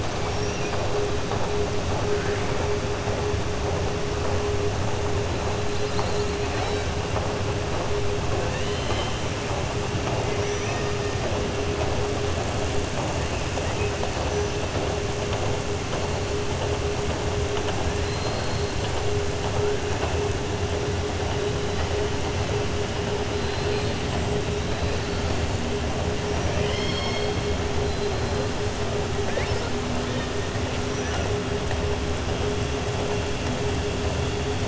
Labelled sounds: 0.2	0.6	killer whale, southern resident, 5.5 to 6.8 kHz
10.3	10.9	killer whale, southern resident, 1.1 to 3.0 kHz
18.0	18.9	killer whale, southern resident, 2.9 to 4.7 kHz
23.3	24.0	killer whale, southern resident, 2.3 to 4.7 kHz
26.4	27.3	killer whale, southern resident, 2.0 to 5.5 kHz

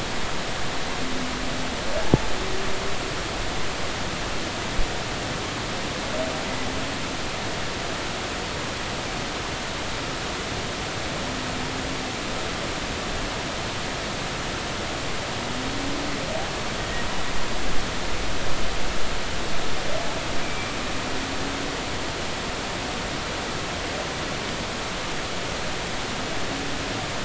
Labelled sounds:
16.8	17.0	humpback whale, 1.8 to 2.0 kHz
20.4	20.7	humpback whale, 2.3 to 2.4 kHz

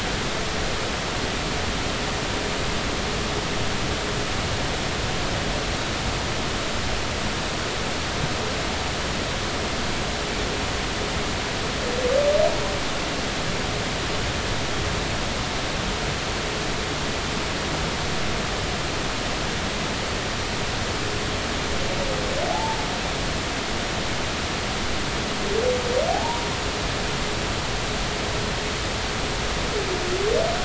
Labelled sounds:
22.5	22.8	humpback whale, 0.80 to 0.96 kHz
26.1	26.4	humpback whale, 0.80 to 0.99 kHz

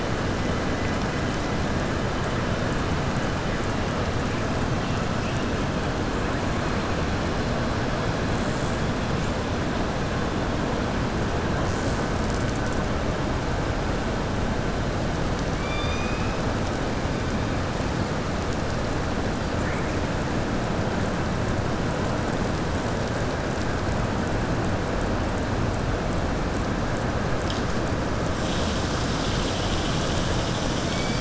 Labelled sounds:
15.5	16.4	killer whale, southern resident, 2.3 to 6.1 kHz

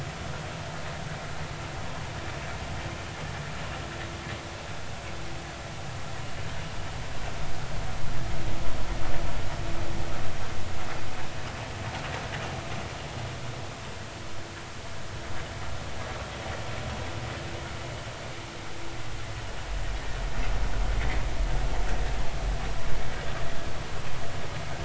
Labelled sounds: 21.0	21.2	vessel noise, 1.9 to 2.2 kHz

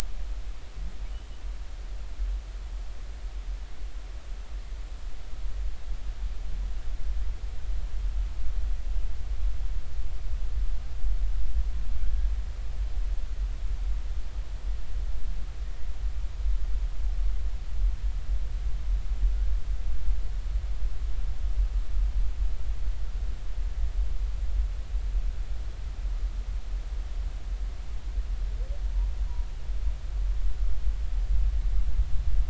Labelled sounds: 13.0	13.3	humpback whale, 1.5 to 1.7 kHz

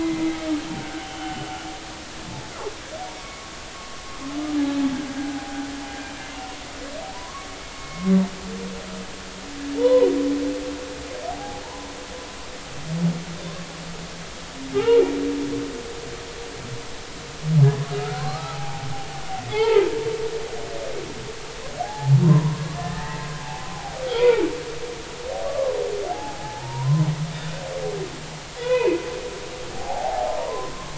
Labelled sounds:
0.0	1.5	humpback whale, 1.3 to 3.1 kHz
3.2	3.4	humpback whale, 2.1 to 2.3 kHz
5.3	5.7	humpback whale, 0.80 to 0.90 kHz
7.1	8.1	humpback whale, 0.90 to 2.2 kHz
9.8	10.1	humpback whale, 0.86 to 1.1 kHz
11.3	11.6	humpback whale, 0.80 to 0.86 kHz
14.7	15.0	humpback whale, 0.80 to 2.9 kHz
18.0	18.9	humpback whale, 0.80 to 1.6 kHz
19.5	19.8	humpback whale, 0.80 to 2.3 kHz
21.8	24.4	humpback whale, 0.80 to 2.6 kHz
25.5	27.0	humpback whale, 0.80 to 1.2 kHz
28.6	29.0	humpback whale, 0.86 to 2.6 kHz
29.7	30.7	humpback whale, 0.80 to 1.1 kHz

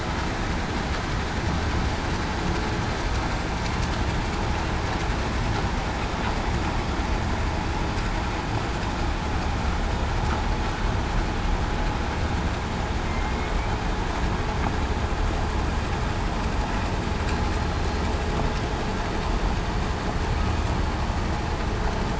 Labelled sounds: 17.4	17.8	killer whale, southern resident, 4.1 to 4.2 kHz

